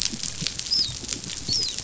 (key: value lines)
label: biophony, dolphin
recorder: SoundTrap 500